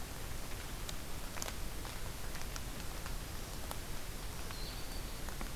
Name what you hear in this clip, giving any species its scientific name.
Setophaga virens, Vireo solitarius